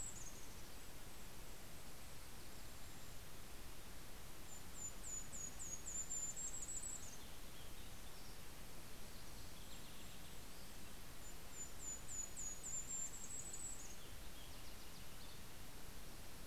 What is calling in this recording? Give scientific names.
Regulus satrapa, Pooecetes gramineus